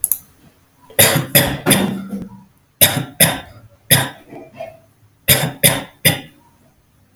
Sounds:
Cough